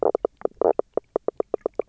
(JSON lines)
{"label": "biophony, knock croak", "recorder": "SoundTrap 300"}